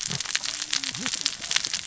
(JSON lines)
{"label": "biophony, cascading saw", "recorder": "SoundTrap 600 or HydroMoth"}